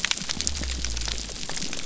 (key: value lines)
label: biophony
recorder: SoundTrap 300